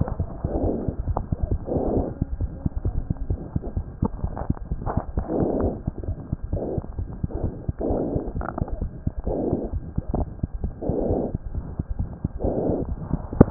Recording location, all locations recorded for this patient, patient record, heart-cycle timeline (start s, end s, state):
mitral valve (MV)
tricuspid valve (TV)+mitral valve (MV)
#Age: Child
#Sex: Male
#Height: 87.0 cm
#Weight: 12.3 kg
#Pregnancy status: False
#Murmur: Present
#Murmur locations: mitral valve (MV)+tricuspid valve (TV)
#Most audible location: tricuspid valve (TV)
#Systolic murmur timing: Mid-systolic
#Systolic murmur shape: Diamond
#Systolic murmur grading: I/VI
#Systolic murmur pitch: Low
#Systolic murmur quality: Harsh
#Diastolic murmur timing: nan
#Diastolic murmur shape: nan
#Diastolic murmur grading: nan
#Diastolic murmur pitch: nan
#Diastolic murmur quality: nan
#Outcome: Abnormal
#Campaign: 2015 screening campaign
0.00	2.38	unannotated
2.38	2.48	S1
2.48	2.62	systole
2.62	2.70	S2
2.70	2.82	diastole
2.82	2.92	S1
2.92	3.08	systole
3.08	3.14	S2
3.14	3.29	diastole
3.29	3.37	S1
3.37	3.54	systole
3.54	3.60	S2
3.60	3.74	diastole
3.74	3.83	S1
3.83	4.00	systole
4.00	4.07	S2
4.07	4.22	diastole
4.22	4.30	S1
4.30	4.47	systole
4.47	4.54	S2
4.54	4.69	diastole
4.69	4.78	S1
4.78	4.94	systole
4.94	5.02	S2
5.02	5.15	diastole
5.15	5.24	S1
5.24	13.50	unannotated